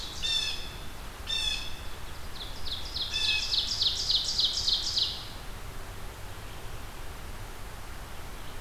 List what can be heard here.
Ovenbird, Blue Jay